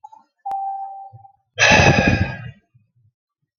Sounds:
Sigh